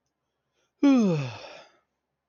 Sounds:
Sigh